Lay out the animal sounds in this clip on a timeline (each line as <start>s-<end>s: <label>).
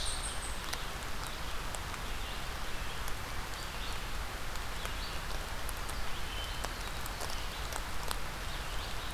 0.0s-0.6s: unidentified call
0.0s-9.1s: Red-eyed Vireo (Vireo olivaceus)
6.0s-7.3s: Hermit Thrush (Catharus guttatus)